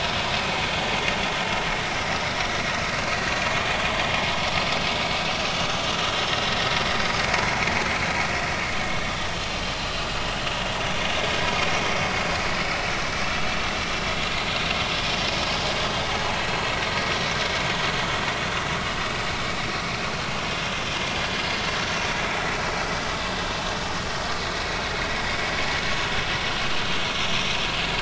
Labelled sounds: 16.3	16.6	vessel noise, 2.5 to 4.4 kHz
27.0	27.3	vessel noise, 5.6 to 5.7 kHz

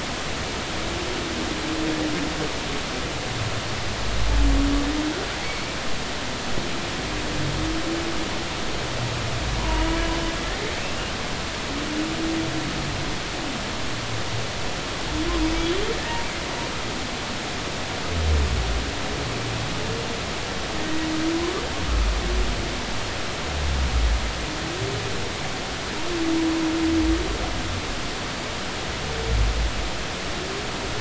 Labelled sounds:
5.4	5.8	humpback whale, 2.0 to 4.6 kHz
9.6	9.9	humpback whale, 0.90 to 1.1 kHz

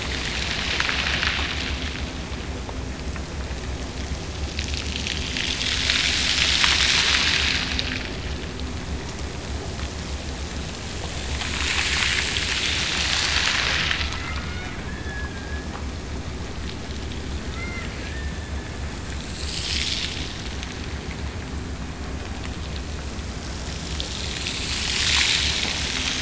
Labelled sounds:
14.2	15.7	killer whale, Bigg's (transient), Gulf of Alaska transient, 1.2 to 3.8 kHz
17.5	18.8	killer whale, Bigg's (transient), Gulf of Alaska transient, 1.1 to 2.9 kHz

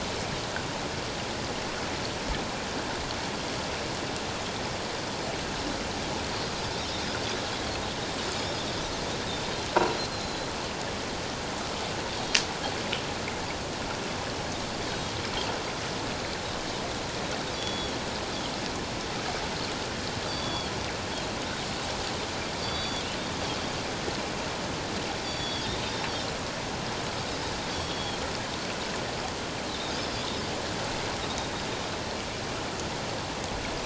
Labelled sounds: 10.1	10.5	Pacific white-sided dolphin, 4.0 to 6.9 kHz
17.5	17.9	Pacific white-sided dolphin, 3.3 to 7.0 kHz
20.3	20.7	Pacific white-sided dolphin, 3.2 to 4.8 kHz
22.6	23.1	Pacific white-sided dolphin, 3.2 to 4.7 kHz
25.2	25.7	Pacific white-sided dolphin, 3.1 to 5.9 kHz
27.7	28.2	Pacific white-sided dolphin, 3.2 to 4.7 kHz

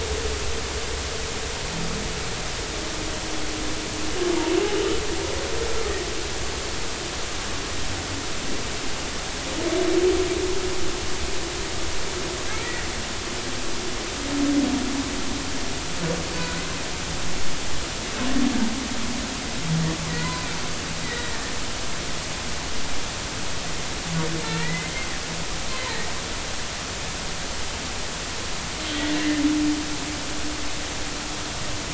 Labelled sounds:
12.6	12.9	humpback whale, 1.8 to 2.0 kHz
16.4	16.6	humpback whale, 1.4 to 1.5 kHz
20.1	21.4	humpback whale, 0.96 to 4.0 kHz
24.6	24.9	humpback whale, 1.8 to 2.1 kHz
29.1	29.4	humpback whale, 1.7 to 2.1 kHz

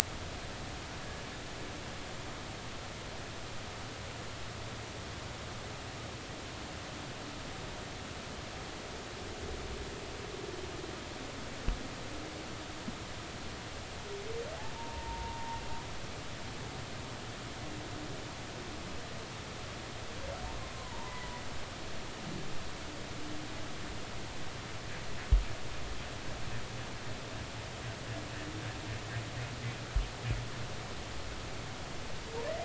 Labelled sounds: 14.7	15.6	humpback whale, 0.86 to 0.99 kHz
20.7	21.3	humpback whale, 0.86 to 2.1 kHz

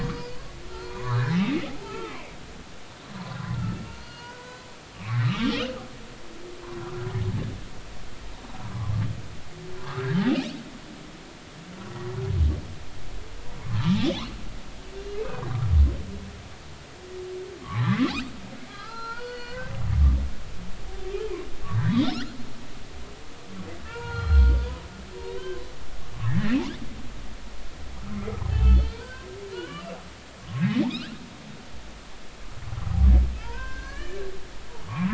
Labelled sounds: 0.0	2.3	humpback whale, 0.80 to 5.0 kHz
3.9	5.8	humpback whale, 1.0 to 5.1 kHz
8.7	8.9	humpback whale, 0.96 to 1.2 kHz
9.8	10.1	humpback whale, 0.96 to 1.5 kHz
11.9	12.2	humpback whale, 1.9 to 2.0 kHz
14.0	14.3	humpback whale, 2.9 to 3.6 kHz
17.6	17.9	humpback whale, 0.93 to 1.2 kHz
18.7	20.5	humpback whale, 0.83 to 5.0 kHz
21.9	22.1	humpback whale, 3.5 to 4.0 kHz
23.8	24.6	humpback whale, 0.90 to 4.3 kHz
25.4	25.6	humpback whale, 0.96 to 1.6 kHz
26.2	26.6	humpback whale, 1.6 to 2.1 kHz
28.2	29.3	humpback whale, 1.2 to 4.7 kHz
29.5	29.9	humpback whale, 1.1 to 3.0 kHz
30.4	30.7	humpback whale, 1.0 to 1.2 kHz
32.8	34.2	humpback whale, 0.80 to 4.5 kHz

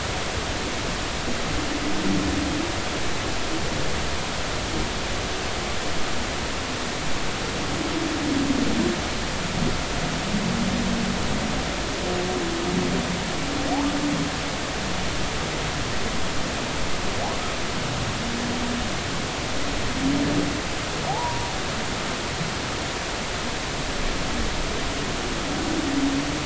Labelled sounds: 21.1	21.5	humpback whale, 0.80 to 1.2 kHz

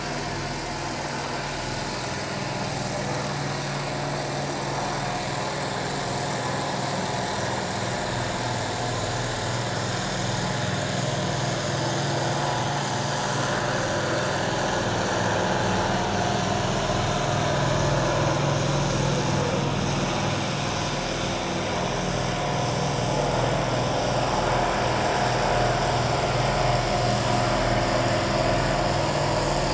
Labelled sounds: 12.4	12.7	vessel noise, 0.78 to 1.0 kHz

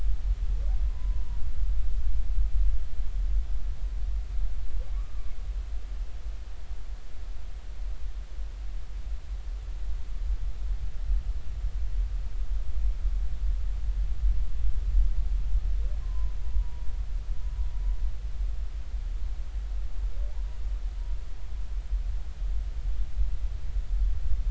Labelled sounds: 0.9	1.4	humpback whale, 0.90 to 1.1 kHz
4.9	5.3	humpback whale, 1.0 to 1.3 kHz
16.0	16.9	humpback whale, 0.90 to 1.1 kHz

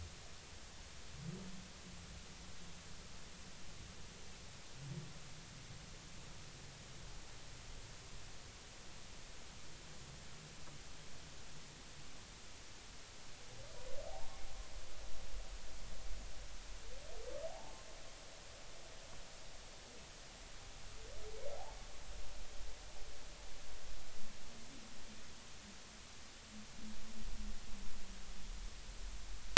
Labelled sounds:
17.5	17.8	humpback whale, 0.80 to 0.96 kHz
21.5	21.8	humpback whale, 0.80 to 0.93 kHz

